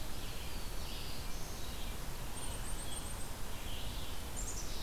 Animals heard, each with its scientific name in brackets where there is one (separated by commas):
Black-throated Blue Warbler (Setophaga caerulescens), Red-eyed Vireo (Vireo olivaceus), Black-capped Chickadee (Poecile atricapillus)